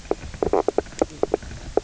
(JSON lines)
{"label": "biophony, knock croak", "recorder": "SoundTrap 300"}